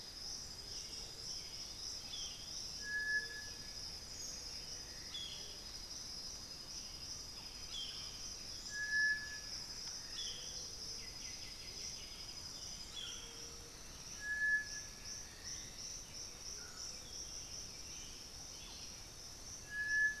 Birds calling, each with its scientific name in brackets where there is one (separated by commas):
Russet-backed Oropendola (Psarocolius angustifrons), Thrush-like Wren (Campylorhynchus turdinus), White-winged Becard (Pachyramphus polychopterus), Buff-throated Saltator (Saltator maximus), Undulated Tinamou (Crypturellus undulatus), Boat-billed Flycatcher (Megarynchus pitangua), Black-billed Thrush (Turdus ignobilis)